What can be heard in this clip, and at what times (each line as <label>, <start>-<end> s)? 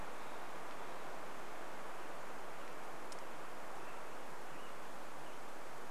American Robin song, 2-6 s